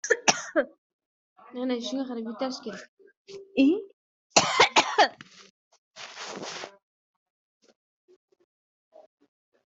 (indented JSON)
{
  "expert_labels": [
    {
      "quality": "poor",
      "cough_type": "unknown",
      "dyspnea": false,
      "wheezing": false,
      "stridor": false,
      "choking": false,
      "congestion": false,
      "nothing": true,
      "diagnosis": "healthy cough",
      "severity": "pseudocough/healthy cough"
    }
  ],
  "age": 24,
  "gender": "male",
  "respiratory_condition": true,
  "fever_muscle_pain": true,
  "status": "healthy"
}